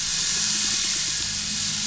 {"label": "biophony", "recorder": "SoundTrap 500"}
{"label": "anthrophony, boat engine", "recorder": "SoundTrap 500"}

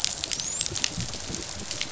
{"label": "biophony, dolphin", "recorder": "SoundTrap 500"}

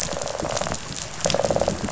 {"label": "biophony, rattle response", "recorder": "SoundTrap 500"}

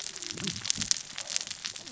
{"label": "biophony, cascading saw", "recorder": "SoundTrap 600 or HydroMoth"}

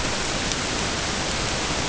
{"label": "ambient", "recorder": "HydroMoth"}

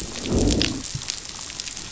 {"label": "biophony, growl", "recorder": "SoundTrap 500"}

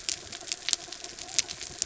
{"label": "anthrophony, mechanical", "recorder": "SoundTrap 300"}
{"label": "biophony", "recorder": "SoundTrap 300"}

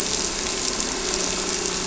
{"label": "anthrophony, boat engine", "recorder": "SoundTrap 300"}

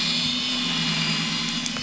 {"label": "anthrophony, boat engine", "recorder": "SoundTrap 500"}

